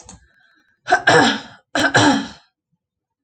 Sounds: Throat clearing